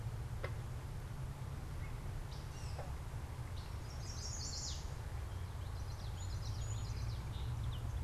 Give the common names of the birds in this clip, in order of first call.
Gray Catbird, Chestnut-sided Warbler, Common Yellowthroat, Song Sparrow